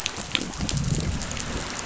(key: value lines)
label: biophony, growl
recorder: SoundTrap 500